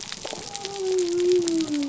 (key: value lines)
label: biophony
recorder: SoundTrap 300